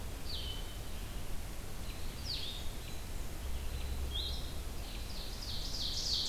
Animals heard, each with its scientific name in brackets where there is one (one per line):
American Robin (Turdus migratorius)
Ovenbird (Seiurus aurocapilla)
Blue-headed Vireo (Vireo solitarius)